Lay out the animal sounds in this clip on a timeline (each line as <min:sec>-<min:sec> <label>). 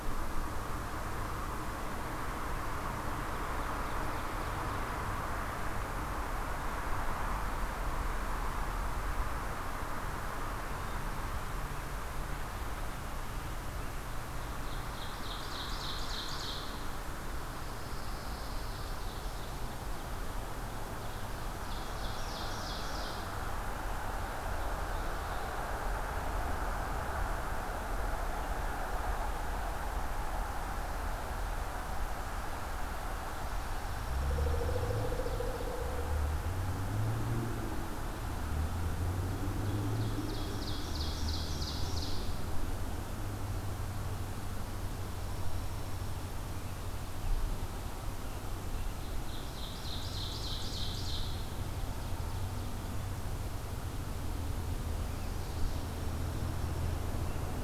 0:03.2-0:05.0 Ovenbird (Seiurus aurocapilla)
0:14.2-0:16.9 Ovenbird (Seiurus aurocapilla)
0:17.3-0:19.0 Pine Warbler (Setophaga pinus)
0:18.4-0:20.1 Ovenbird (Seiurus aurocapilla)
0:21.4-0:23.4 Ovenbird (Seiurus aurocapilla)
0:33.7-0:35.1 Dark-eyed Junco (Junco hyemalis)
0:34.2-0:36.1 Pileated Woodpecker (Dryocopus pileatus)
0:39.5-0:42.2 Ovenbird (Seiurus aurocapilla)
0:45.0-0:46.8 Dark-eyed Junco (Junco hyemalis)
0:48.8-0:52.8 Ovenbird (Seiurus aurocapilla)
0:55.4-0:56.9 Dark-eyed Junco (Junco hyemalis)